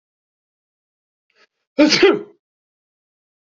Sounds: Sneeze